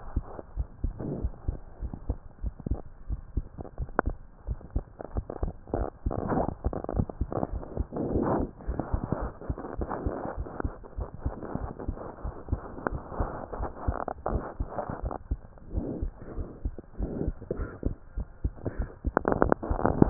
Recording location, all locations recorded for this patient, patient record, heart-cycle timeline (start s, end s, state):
pulmonary valve (PV)
aortic valve (AV)+pulmonary valve (PV)+tricuspid valve (TV)+mitral valve (MV)
#Age: Child
#Sex: Female
#Height: 112.0 cm
#Weight: 23.5 kg
#Pregnancy status: False
#Murmur: Absent
#Murmur locations: nan
#Most audible location: nan
#Systolic murmur timing: nan
#Systolic murmur shape: nan
#Systolic murmur grading: nan
#Systolic murmur pitch: nan
#Systolic murmur quality: nan
#Diastolic murmur timing: nan
#Diastolic murmur shape: nan
#Diastolic murmur grading: nan
#Diastolic murmur pitch: nan
#Diastolic murmur quality: nan
#Outcome: Normal
#Campaign: 2015 screening campaign
0.00	0.32	unannotated
0.32	0.54	diastole
0.54	0.68	S1
0.68	0.80	systole
0.80	0.94	S2
0.94	1.18	diastole
1.18	1.32	S1
1.32	1.46	systole
1.46	1.60	S2
1.60	1.82	diastole
1.82	1.94	S1
1.94	2.06	systole
2.06	2.20	S2
2.20	2.42	diastole
2.42	2.54	S1
2.54	2.66	systole
2.66	2.80	S2
2.80	3.08	diastole
3.08	3.20	S1
3.20	3.32	systole
3.32	3.46	S2
3.46	3.76	diastole
3.76	3.90	S1
3.90	4.04	systole
4.04	4.18	S2
4.18	4.44	diastole
4.44	4.58	S1
4.58	4.72	systole
4.72	4.86	S2
4.86	5.13	diastole
5.13	5.26	S1
5.26	5.40	systole
5.40	5.54	S2
5.54	5.74	diastole
5.74	5.88	S1
5.88	6.02	systole
6.02	6.12	S2
6.12	6.32	diastole
6.32	6.48	S1
6.48	6.62	systole
6.62	6.74	S2
6.74	6.94	diastole
6.94	7.06	S1
7.06	7.18	systole
7.18	7.32	S2
7.32	7.52	diastole
7.52	7.64	S1
7.64	7.78	systole
7.78	7.84	S2
7.84	20.10	unannotated